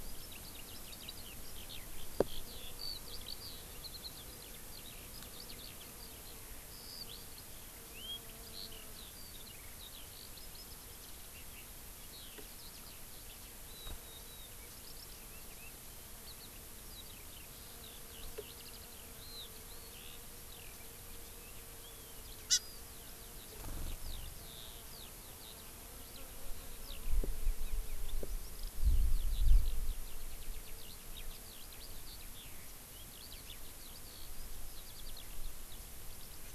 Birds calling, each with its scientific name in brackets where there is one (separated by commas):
Eurasian Skylark (Alauda arvensis), Hawaii Amakihi (Chlorodrepanis virens)